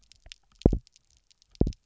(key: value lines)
label: biophony, double pulse
recorder: SoundTrap 300